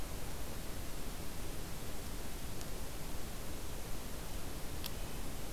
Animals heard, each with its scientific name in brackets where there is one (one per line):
Red-breasted Nuthatch (Sitta canadensis)